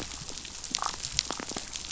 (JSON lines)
{"label": "biophony, damselfish", "recorder": "SoundTrap 500"}